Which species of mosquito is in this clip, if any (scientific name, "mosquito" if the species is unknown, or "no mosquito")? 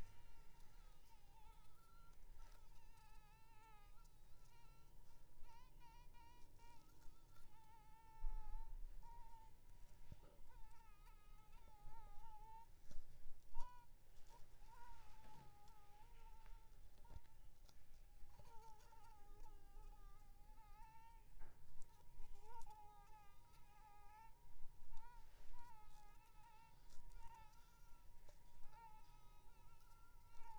Anopheles squamosus